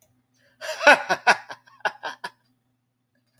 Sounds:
Laughter